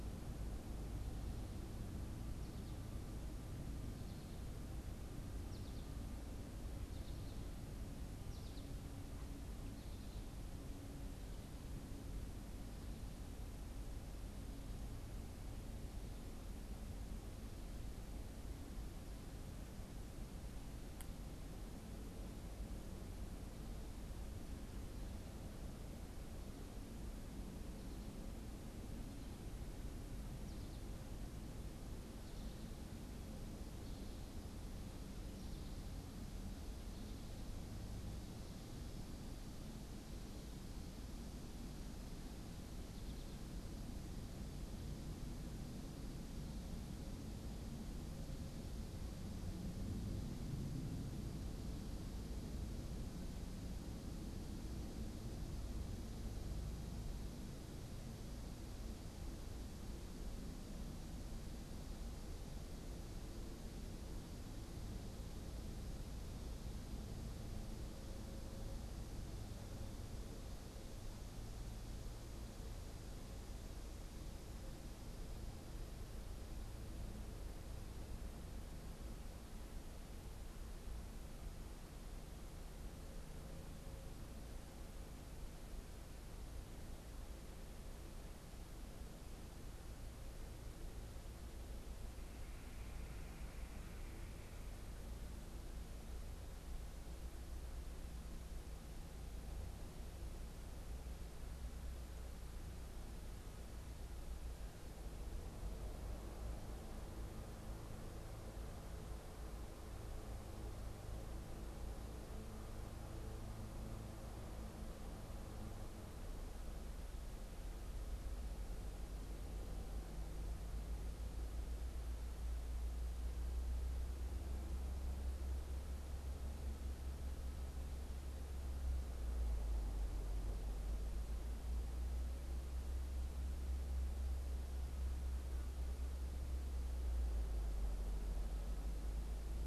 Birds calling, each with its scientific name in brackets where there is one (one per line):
American Goldfinch (Spinus tristis)